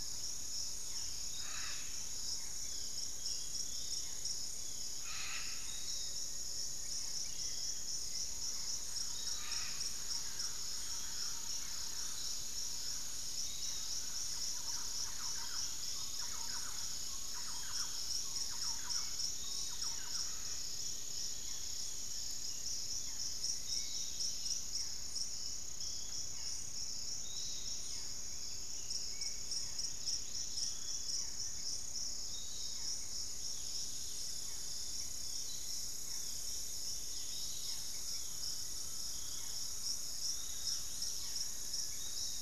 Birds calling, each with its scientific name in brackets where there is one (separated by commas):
Amazonian Motmot (Momotus momota), Long-winged Antwren (Myrmotherula longipennis), Undulated Tinamou (Crypturellus undulatus), Thrush-like Wren (Campylorhynchus turdinus), Collared Trogon (Trogon collaris), unidentified bird, Spot-winged Antshrike (Pygiptila stellaris), Dusky-capped Greenlet (Pachysylvia hypoxantha), Piratic Flycatcher (Legatus leucophaius), Plain-winged Antshrike (Thamnophilus schistaceus), Barred Forest-Falcon (Micrastur ruficollis)